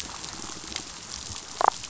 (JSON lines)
{"label": "biophony, damselfish", "recorder": "SoundTrap 500"}
{"label": "biophony", "recorder": "SoundTrap 500"}